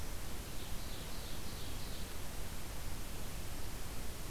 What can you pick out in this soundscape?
Ovenbird